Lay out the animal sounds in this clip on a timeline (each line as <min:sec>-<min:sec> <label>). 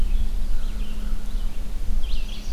0:00.0-0:02.5 Red-eyed Vireo (Vireo olivaceus)
0:00.4-0:01.4 American Crow (Corvus brachyrhynchos)
0:02.0-0:02.5 Chestnut-sided Warbler (Setophaga pensylvanica)